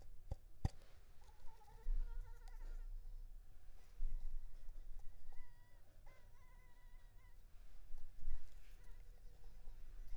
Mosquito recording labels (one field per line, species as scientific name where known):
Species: Anopheles arabiensis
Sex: female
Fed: unfed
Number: one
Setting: cup